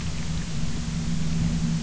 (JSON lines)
{"label": "anthrophony, boat engine", "recorder": "SoundTrap 300"}